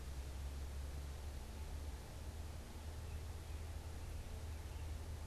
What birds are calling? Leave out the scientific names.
American Robin